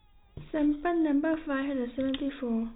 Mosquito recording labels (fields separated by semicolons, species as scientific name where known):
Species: no mosquito; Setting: cup